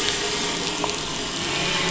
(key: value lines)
label: anthrophony, boat engine
recorder: SoundTrap 500